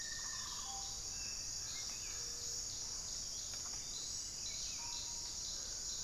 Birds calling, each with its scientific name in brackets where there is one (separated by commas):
Rufous-fronted Antthrush (Formicarius rufifrons), Russet-backed Oropendola (Psarocolius angustifrons)